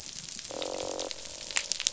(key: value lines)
label: biophony, croak
recorder: SoundTrap 500